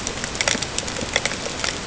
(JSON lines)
{"label": "ambient", "recorder": "HydroMoth"}